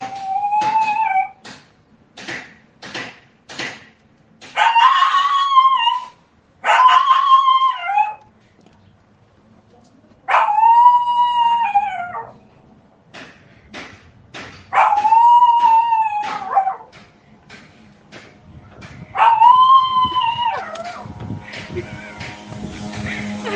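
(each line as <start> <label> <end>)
0.0 A hitting sound with regular pauses. 4.0
0.0 A dog whining and moaning softly. 1.6
4.3 A dog yelps loudly and sharply. 8.3
10.1 A dog howls mournfully. 12.5
13.0 A hitting sound with regular pauses. 19.1
14.5 A dog howls painfully. 17.1
19.1 A dog howls and cries out in distress. 20.8
21.1 A machine hums steadily. 23.6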